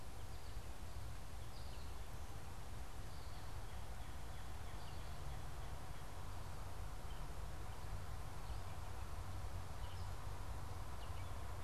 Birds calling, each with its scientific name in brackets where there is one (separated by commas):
American Goldfinch (Spinus tristis), Northern Cardinal (Cardinalis cardinalis), Gray Catbird (Dumetella carolinensis)